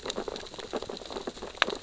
{"label": "biophony, sea urchins (Echinidae)", "recorder": "SoundTrap 600 or HydroMoth"}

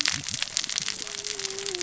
{"label": "biophony, cascading saw", "recorder": "SoundTrap 600 or HydroMoth"}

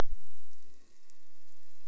{"label": "anthrophony, boat engine", "recorder": "SoundTrap 300"}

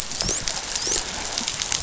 {"label": "biophony, dolphin", "recorder": "SoundTrap 500"}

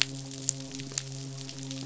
{"label": "biophony, midshipman", "recorder": "SoundTrap 500"}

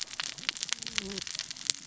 {"label": "biophony, cascading saw", "recorder": "SoundTrap 600 or HydroMoth"}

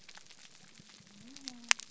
{"label": "biophony", "recorder": "SoundTrap 300"}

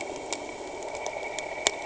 {"label": "anthrophony, boat engine", "recorder": "HydroMoth"}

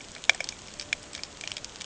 {"label": "ambient", "recorder": "HydroMoth"}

